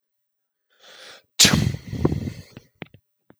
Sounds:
Sneeze